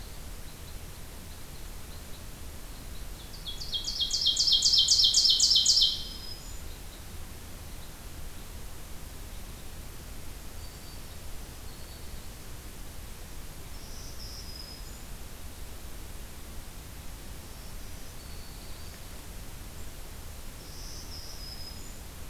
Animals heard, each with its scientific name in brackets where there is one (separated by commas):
Red Crossbill (Loxia curvirostra), Ovenbird (Seiurus aurocapilla), Black-throated Green Warbler (Setophaga virens)